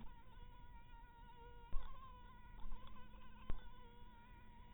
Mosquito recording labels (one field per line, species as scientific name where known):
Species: mosquito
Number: one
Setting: cup